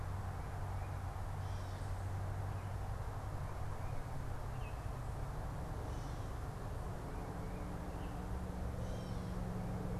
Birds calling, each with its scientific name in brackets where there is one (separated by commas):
Baltimore Oriole (Icterus galbula), Gray Catbird (Dumetella carolinensis)